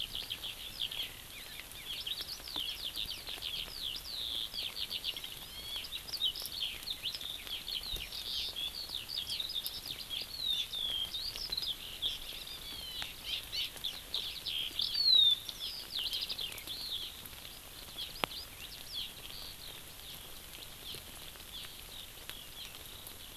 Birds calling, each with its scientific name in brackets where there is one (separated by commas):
Hawaii Amakihi (Chlorodrepanis virens), Eurasian Skylark (Alauda arvensis)